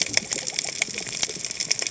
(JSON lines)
{"label": "biophony, cascading saw", "recorder": "HydroMoth"}